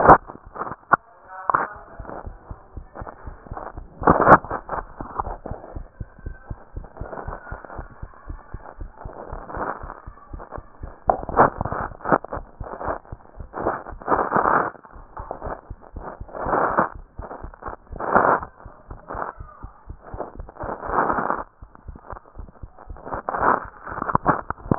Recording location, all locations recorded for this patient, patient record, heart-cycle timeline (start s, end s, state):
mitral valve (MV)
aortic valve (AV)+pulmonary valve (PV)+tricuspid valve (TV)+mitral valve (MV)
#Age: Adolescent
#Sex: Male
#Height: 151.0 cm
#Weight: 38.3 kg
#Pregnancy status: False
#Murmur: Absent
#Murmur locations: nan
#Most audible location: nan
#Systolic murmur timing: nan
#Systolic murmur shape: nan
#Systolic murmur grading: nan
#Systolic murmur pitch: nan
#Systolic murmur quality: nan
#Diastolic murmur timing: nan
#Diastolic murmur shape: nan
#Diastolic murmur grading: nan
#Diastolic murmur pitch: nan
#Diastolic murmur quality: nan
#Outcome: Normal
#Campaign: 2015 screening campaign
0.00	5.58	unannotated
5.58	5.70	diastole
5.70	5.86	S1
5.86	5.94	systole
5.94	6.06	S2
6.06	6.20	diastole
6.20	6.32	S1
6.32	6.44	systole
6.44	6.56	S2
6.56	6.70	diastole
6.70	6.86	S1
6.86	6.98	systole
6.98	7.08	S2
7.08	7.22	diastole
7.22	7.38	S1
7.38	7.50	systole
7.50	7.60	S2
7.60	7.76	diastole
7.76	7.88	S1
7.88	8.00	systole
8.00	8.10	S2
8.10	8.30	diastole
8.30	8.42	S1
8.42	8.52	systole
8.52	8.66	S2
8.66	8.80	diastole
8.80	8.92	S1
8.92	9.04	systole
9.04	9.14	S2
9.14	9.30	diastole
9.30	9.44	S1
9.44	9.54	systole
9.54	9.68	S2
9.68	9.82	diastole
9.82	9.94	S1
9.94	10.06	systole
10.06	10.16	S2
10.16	10.32	diastole
10.32	10.44	S1
10.44	10.56	systole
10.56	10.66	S2
10.66	10.82	diastole
10.82	10.94	S1
10.94	11.06	systole
11.06	11.20	S2
11.20	11.34	diastole
11.34	24.78	unannotated